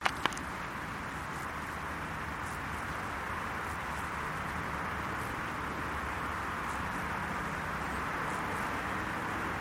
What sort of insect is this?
orthopteran